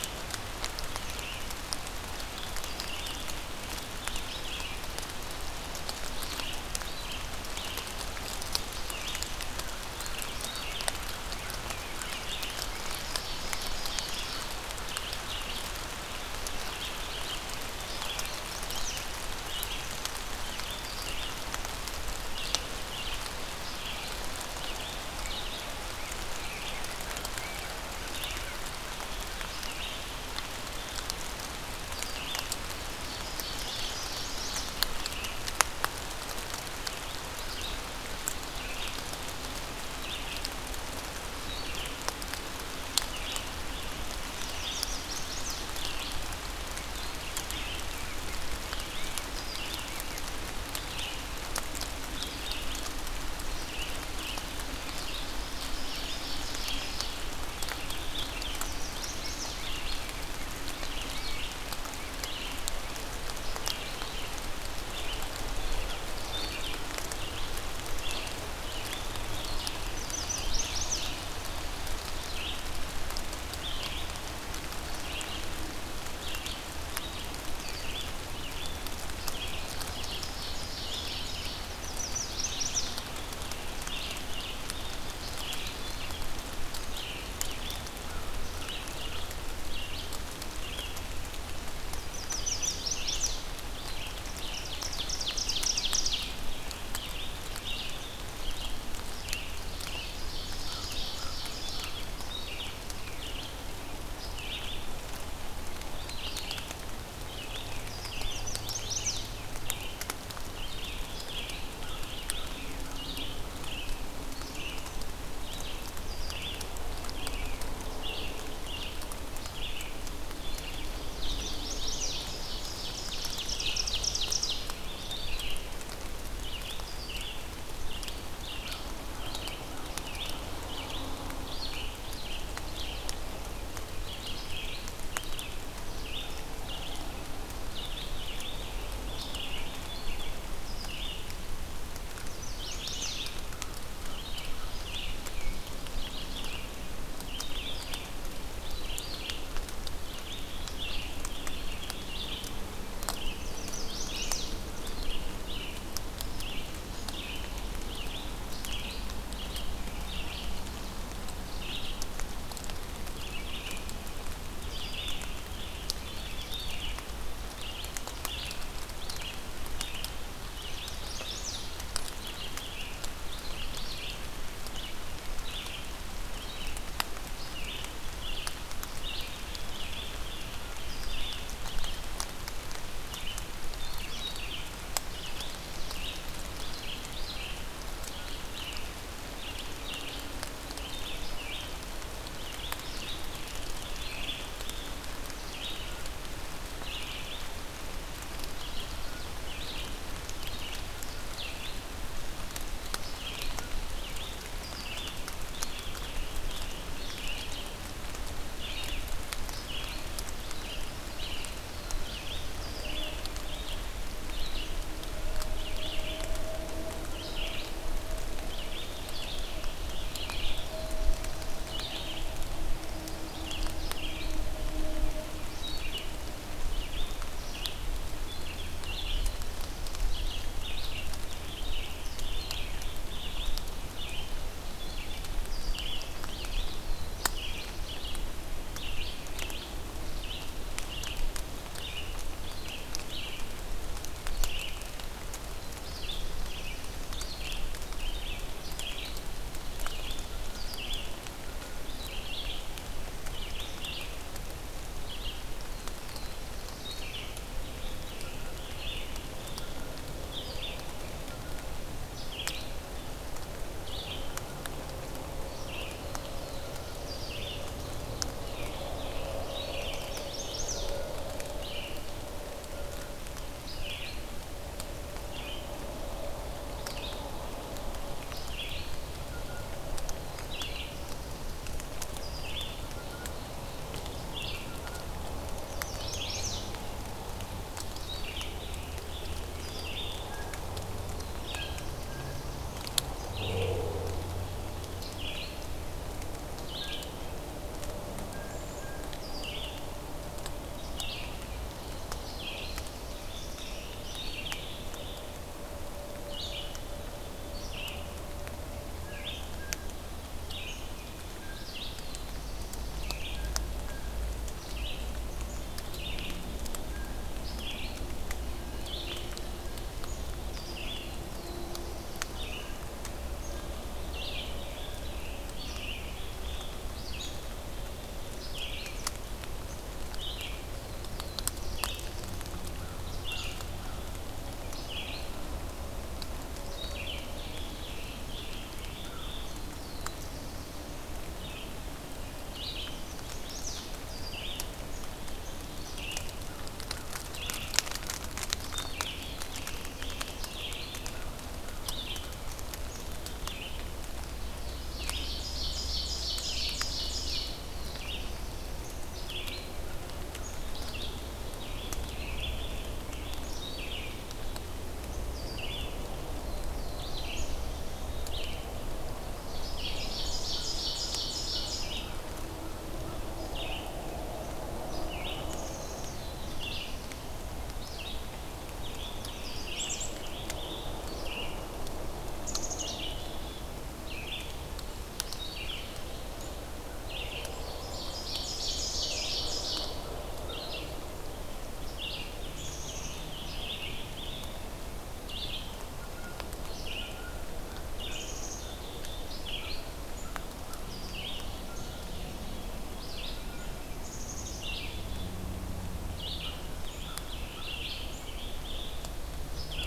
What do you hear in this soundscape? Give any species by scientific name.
Vireo olivaceus, Corvus brachyrhynchos, Seiurus aurocapilla, Setophaga pensylvanica, Setophaga caerulescens, Cyanocitta cristata, Pheucticus ludovicianus, Poecile atricapillus